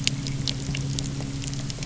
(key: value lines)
label: anthrophony, boat engine
recorder: SoundTrap 300